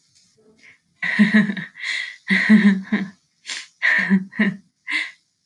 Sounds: Laughter